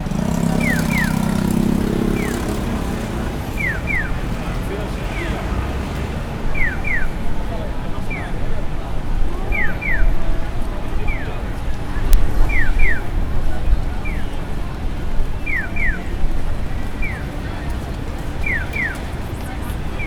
Is there a bird chirping?
yes